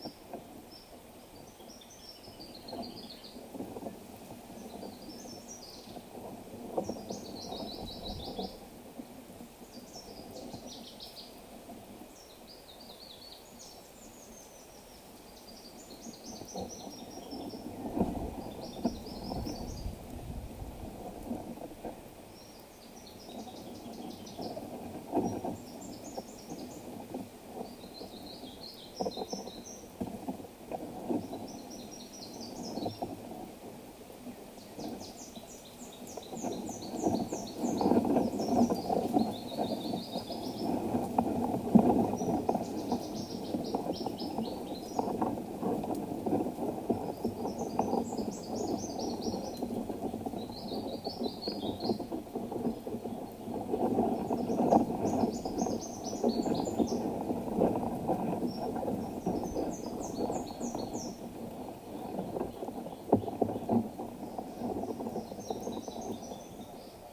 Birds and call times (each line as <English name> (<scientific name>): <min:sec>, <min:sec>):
Brown Woodland-Warbler (Phylloscopus umbrovirens): 0:07.9, 0:16.9, 0:23.7, 0:29.1, 0:37.1, 0:51.3, 1:00.3, 1:06.0
Spectacled Weaver (Ploceus ocularis): 0:14.4
Cinnamon-chested Bee-eater (Merops oreobates): 0:42.2, 0:58.6